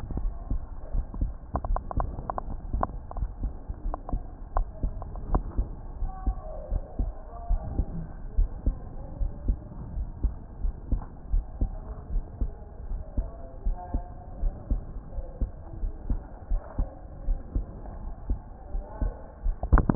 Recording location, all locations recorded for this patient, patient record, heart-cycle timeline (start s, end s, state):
pulmonary valve (PV)
aortic valve (AV)+pulmonary valve (PV)+tricuspid valve (TV)+mitral valve (MV)
#Age: Adolescent
#Sex: Male
#Height: 139.0 cm
#Weight: 32.9 kg
#Pregnancy status: False
#Murmur: Absent
#Murmur locations: nan
#Most audible location: nan
#Systolic murmur timing: nan
#Systolic murmur shape: nan
#Systolic murmur grading: nan
#Systolic murmur pitch: nan
#Systolic murmur quality: nan
#Diastolic murmur timing: nan
#Diastolic murmur shape: nan
#Diastolic murmur grading: nan
#Diastolic murmur pitch: nan
#Diastolic murmur quality: nan
#Outcome: Normal
#Campaign: 2015 screening campaign
0.00	4.24	unannotated
4.24	4.54	diastole
4.54	4.68	S1
4.68	4.82	systole
4.82	4.94	S2
4.94	5.30	diastole
5.30	5.44	S1
5.44	5.58	systole
5.58	5.68	S2
5.68	6.00	diastole
6.00	6.12	S1
6.12	6.24	systole
6.24	6.38	S2
6.38	6.70	diastole
6.70	6.84	S1
6.84	6.98	systole
6.98	7.12	S2
7.12	7.48	diastole
7.48	7.62	S1
7.62	7.76	systole
7.76	7.88	S2
7.88	8.34	diastole
8.34	8.50	S1
8.50	8.66	systole
8.66	8.80	S2
8.80	9.20	diastole
9.20	9.32	S1
9.32	9.44	systole
9.44	9.58	S2
9.58	9.96	diastole
9.96	10.10	S1
10.10	10.22	systole
10.22	10.34	S2
10.34	10.62	diastole
10.62	10.74	S1
10.74	10.88	systole
10.88	11.02	S2
11.02	11.32	diastole
11.32	11.46	S1
11.46	11.60	systole
11.60	11.74	S2
11.74	12.12	diastole
12.12	12.24	S1
12.24	12.40	systole
12.40	12.52	S2
12.52	12.88	diastole
12.88	13.00	S1
13.00	13.16	systole
13.16	13.28	S2
13.28	13.64	diastole
13.64	13.78	S1
13.78	13.90	systole
13.90	14.04	S2
14.04	14.42	diastole
14.42	14.54	S1
14.54	14.68	systole
14.68	14.82	S2
14.82	15.16	diastole
15.16	15.26	S1
15.26	15.40	systole
15.40	15.50	S2
15.50	15.80	diastole
15.80	15.94	S1
15.94	16.08	systole
16.08	16.22	S2
16.22	16.52	diastole
16.52	16.62	S1
16.62	16.76	systole
16.76	16.88	S2
16.88	17.26	diastole
17.26	17.40	S1
17.40	17.54	systole
17.54	17.66	S2
17.66	17.98	diastole
17.98	19.95	unannotated